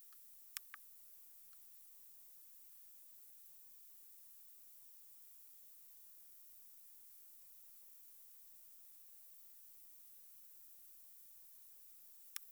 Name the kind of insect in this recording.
orthopteran